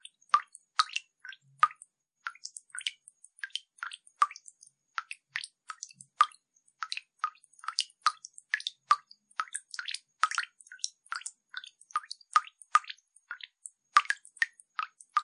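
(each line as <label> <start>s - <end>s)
Water droplets fall irregularly onto the surface of water. 0.0s - 15.2s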